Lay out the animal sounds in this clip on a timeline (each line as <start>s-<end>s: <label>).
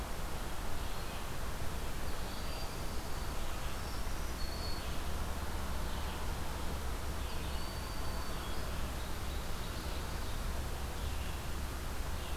0.0s-12.4s: Red-eyed Vireo (Vireo olivaceus)
1.8s-3.4s: Broad-winged Hawk (Buteo platypterus)
3.8s-5.3s: Black-throated Green Warbler (Setophaga virens)
7.1s-8.6s: Broad-winged Hawk (Buteo platypterus)
8.8s-10.6s: Ovenbird (Seiurus aurocapilla)